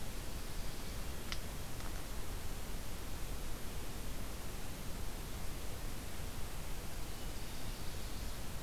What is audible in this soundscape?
Ovenbird